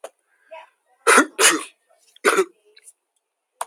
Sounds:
Sneeze